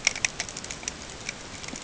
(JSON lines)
{"label": "ambient", "recorder": "HydroMoth"}